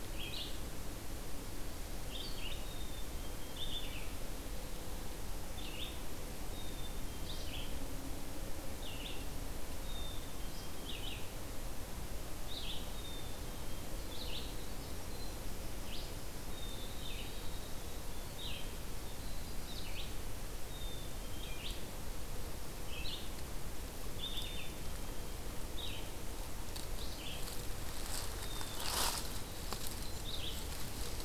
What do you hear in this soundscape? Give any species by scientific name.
Vireo olivaceus, Poecile atricapillus